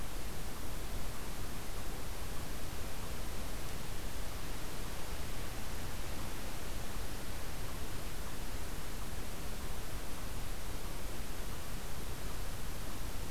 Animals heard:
Eastern Chipmunk (Tamias striatus)

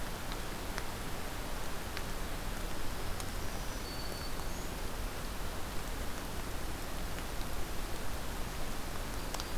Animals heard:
Black-throated Green Warbler (Setophaga virens)

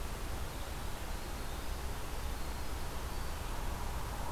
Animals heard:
Winter Wren (Troglodytes hiemalis)

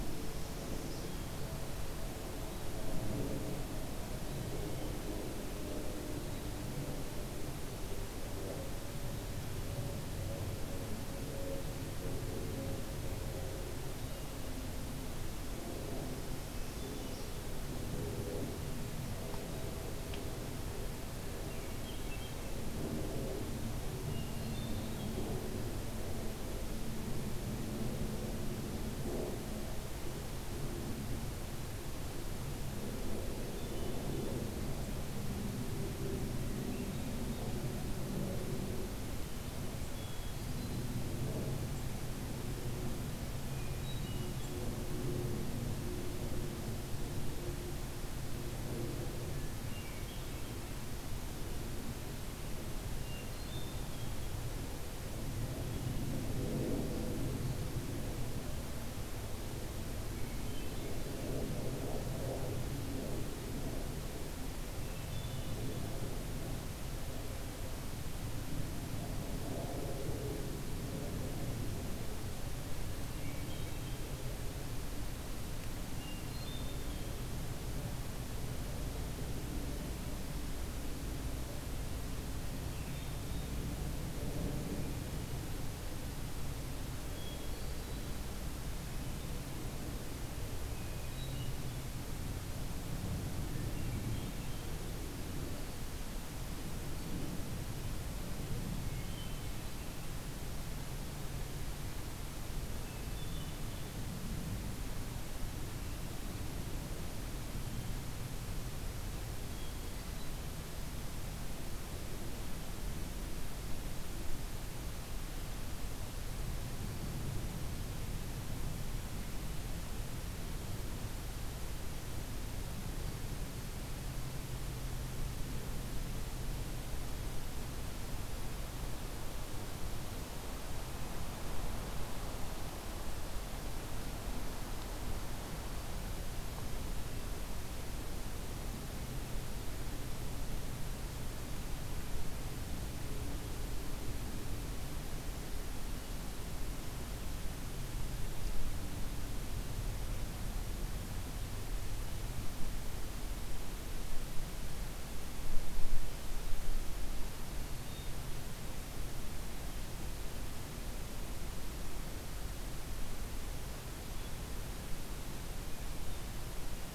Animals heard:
Northern Parula (Setophaga americana)
Hermit Thrush (Catharus guttatus)

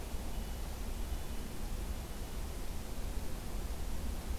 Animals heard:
Red-breasted Nuthatch (Sitta canadensis)

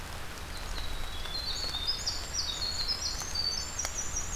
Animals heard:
Winter Wren (Troglodytes hiemalis)

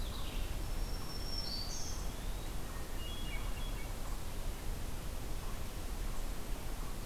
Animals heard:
Black-throated Green Warbler (Setophaga virens)
Hermit Thrush (Catharus guttatus)
Red-eyed Vireo (Vireo olivaceus)
Eastern Wood-Pewee (Contopus virens)

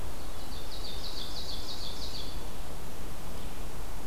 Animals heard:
Ovenbird (Seiurus aurocapilla)

